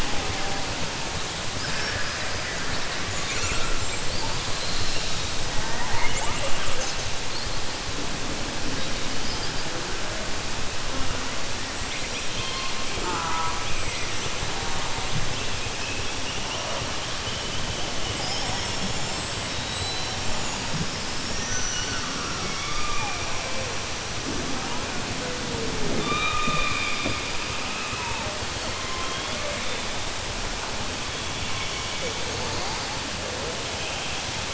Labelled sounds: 1.6	2.3	killer whale, southern resident, 1.5 to 2.6 kHz
19.5	20.2	killer whale, southern resident, 3.1 to 4.6 kHz
31.4	32.2	killer whale, southern resident, 2.2 to 3.5 kHz

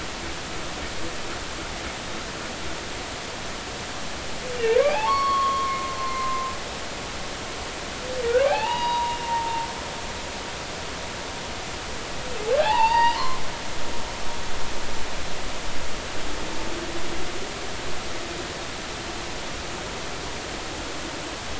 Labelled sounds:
4.8	6.5	humpback whale, 0.80 to 4.6 kHz
8.4	9.7	humpback whale, 0.80 to 4.9 kHz
12.6	13.4	humpback whale, 0.80 to 4.9 kHz

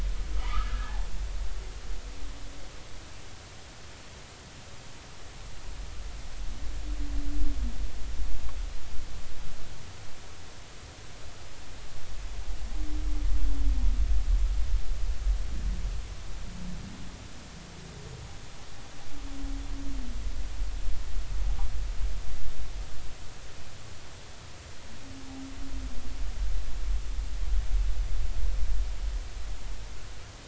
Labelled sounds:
0.3	1.1	humpback whale, 0.80 to 1.8 kHz

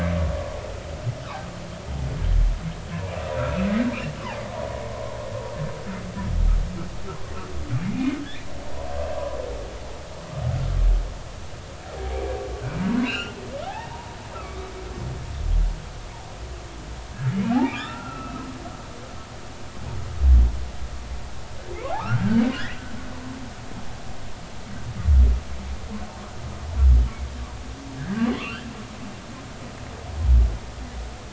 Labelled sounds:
3.4	3.7	humpback whale, 1.3 to 2.7 kHz
12.1	12.4	humpback whale, 2.1 to 2.4 kHz
13.0	13.4	humpback whale, 1.3 to 3.2 kHz
13.7	14.7	humpback whale, 0.80 to 1.9 kHz
17.5	18.4	humpback whale, 0.80 to 2.8 kHz
22.0	22.4	humpback whale, 1.1 to 1.7 kHz
28.3	28.7	humpback whale, 1.0 to 3.4 kHz

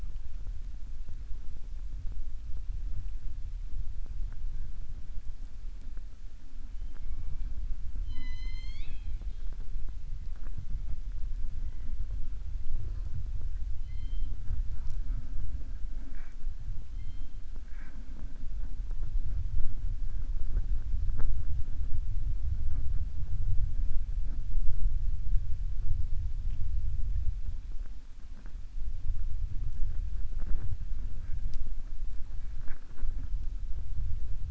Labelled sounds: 8.0	9.5	killer whale, southern resident, 0.29 to 7.5 kHz

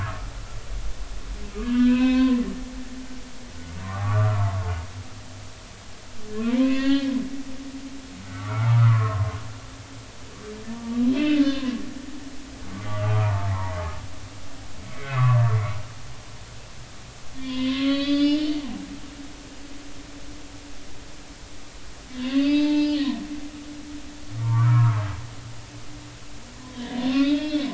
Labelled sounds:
1.6	2.4	humpback whale, 0.96 to 3.9 kHz
3.7	4.4	humpback whale, 0.93 to 1.5 kHz
6.5	7.1	humpback whale, 0.90 to 4.8 kHz
8.3	9.4	humpback whale, 0.93 to 1.6 kHz
11.1	11.7	humpback whale, 0.96 to 2.8 kHz
12.9	13.5	humpback whale, 0.86 to 1.3 kHz
14.9	15.6	humpback whale, 0.93 to 2.7 kHz
17.4	18.5	humpback whale, 0.96 to 5.0 kHz
22.2	25.0	humpback whale, 0.83 to 5.1 kHz
27.0	27.7	humpback whale, 1.3 to 4.7 kHz

